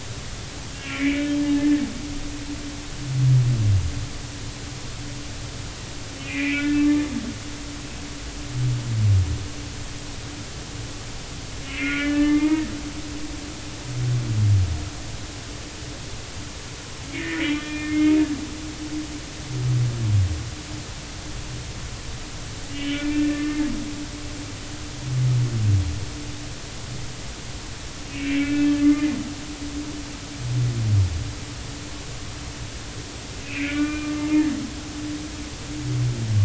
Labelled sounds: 0.8	1.3	humpback whale, 1.7 to 2.5 kHz
6.2	6.9	humpback whale, 1.4 to 2.8 kHz
11.7	12.7	humpback whale, 0.86 to 2.5 kHz
17.1	18.0	humpback whale, 1.7 to 3.4 kHz
18.8	19.1	humpback whale, 2.1 to 2.2 kHz
22.7	23.7	humpback whale, 1.1 to 3.0 kHz
28.1	29.1	humpback whale, 1.4 to 2.9 kHz
33.4	34.1	humpback whale, 1.1 to 2.8 kHz

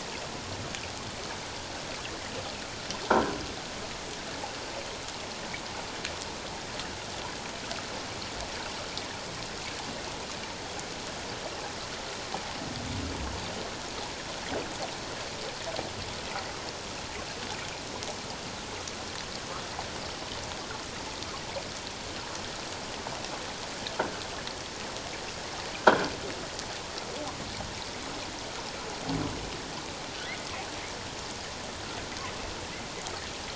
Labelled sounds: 30.2	30.5	humpback whale, 1.9 to 2.2 kHz

